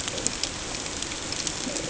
{"label": "ambient", "recorder": "HydroMoth"}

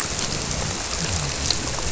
{"label": "biophony", "recorder": "SoundTrap 300"}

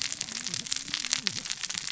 {"label": "biophony, cascading saw", "recorder": "SoundTrap 600 or HydroMoth"}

